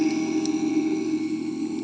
{"label": "anthrophony, boat engine", "recorder": "HydroMoth"}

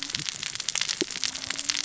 {"label": "biophony, cascading saw", "recorder": "SoundTrap 600 or HydroMoth"}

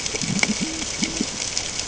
{"label": "ambient", "recorder": "HydroMoth"}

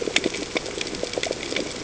{"label": "ambient", "recorder": "HydroMoth"}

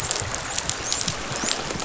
{"label": "biophony, dolphin", "recorder": "SoundTrap 500"}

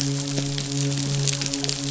{"label": "biophony, midshipman", "recorder": "SoundTrap 500"}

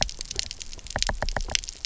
{"label": "biophony, knock", "recorder": "SoundTrap 300"}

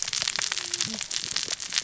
{"label": "biophony, cascading saw", "recorder": "SoundTrap 600 or HydroMoth"}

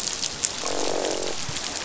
{"label": "biophony, croak", "recorder": "SoundTrap 500"}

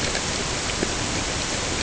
{"label": "ambient", "recorder": "HydroMoth"}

